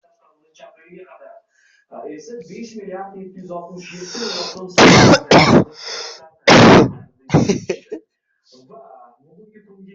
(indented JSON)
{
  "expert_labels": [
    {
      "quality": "poor",
      "cough_type": "unknown",
      "dyspnea": false,
      "wheezing": false,
      "stridor": false,
      "choking": false,
      "congestion": false,
      "nothing": true,
      "diagnosis": "healthy cough",
      "severity": "pseudocough/healthy cough"
    }
  ],
  "gender": "female",
  "respiratory_condition": false,
  "fever_muscle_pain": false,
  "status": "COVID-19"
}